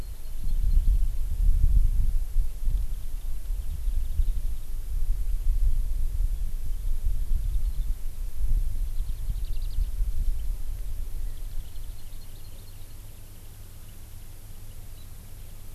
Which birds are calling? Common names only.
Hawaii Amakihi, Warbling White-eye